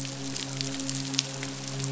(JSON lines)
{"label": "biophony, midshipman", "recorder": "SoundTrap 500"}